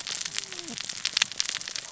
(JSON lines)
{"label": "biophony, cascading saw", "recorder": "SoundTrap 600 or HydroMoth"}